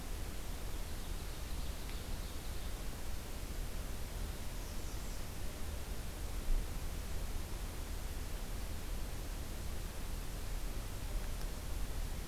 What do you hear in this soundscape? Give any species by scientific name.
Seiurus aurocapilla, Setophaga ruticilla